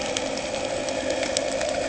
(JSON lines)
{"label": "anthrophony, boat engine", "recorder": "HydroMoth"}